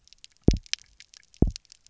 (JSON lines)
{"label": "biophony, double pulse", "recorder": "SoundTrap 300"}